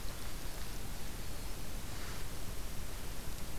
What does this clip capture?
Winter Wren